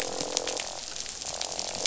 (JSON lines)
{"label": "biophony, croak", "recorder": "SoundTrap 500"}